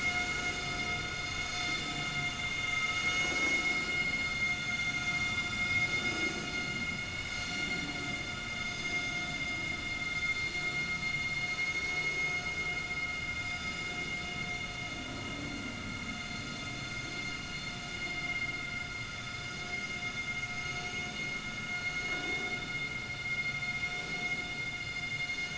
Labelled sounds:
1.3	1.6	vessel noise, 6.4 to 6.6 kHz
3.0	3.6	vessel noise, 6.4 to 6.7 kHz
4.3	5.0	vessel noise, 3.4 to 6.4 kHz
7.1	7.4	vessel noise, 5.0 to 5.2 kHz
8.7	8.9	vessel noise, 6.3 to 6.4 kHz
11.7	12.0	vessel noise, 4.3 to 4.4 kHz
18.2	18.5	vessel noise, 2.0 to 2.2 kHz
20.6	20.9	vessel noise, 6.4 to 6.5 kHz

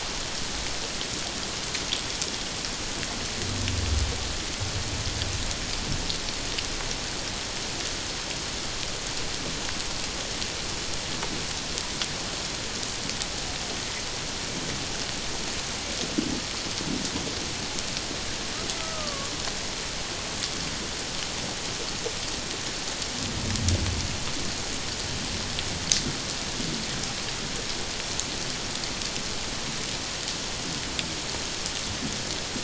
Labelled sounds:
18.8	19.3	humpback whale, 1.1 to 1.3 kHz

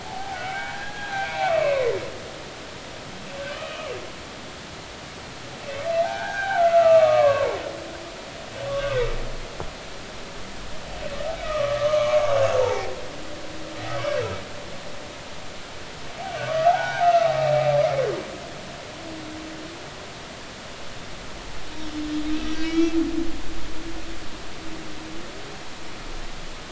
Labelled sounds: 0.0	1.9	humpback whale, 0.80 to 2.7 kHz
3.5	3.9	humpback whale, 1.1 to 2.6 kHz
6.0	7.6	humpback whale, 0.80 to 2.8 kHz
8.7	9.0	humpback whale, 1.1 to 1.3 kHz
11.4	12.9	humpback whale, 0.80 to 1.3 kHz
16.4	17.3	humpback whale, 0.80 to 2.4 kHz
22.4	22.9	humpback whale, 1.9 to 2.4 kHz

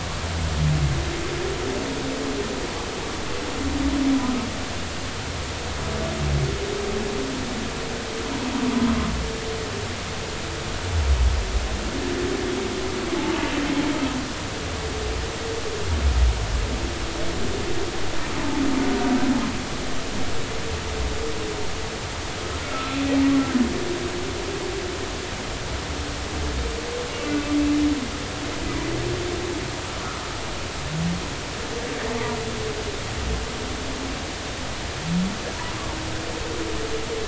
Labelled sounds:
22.6	23.0	humpback whale, 1.2 to 1.4 kHz

